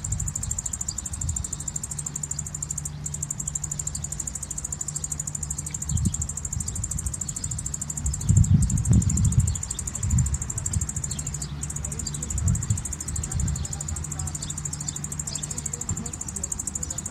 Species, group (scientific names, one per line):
Tettigettalna argentata
Cicadidae